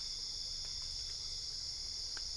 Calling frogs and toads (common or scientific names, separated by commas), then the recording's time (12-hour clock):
Dendropsophus cruzi
2:00am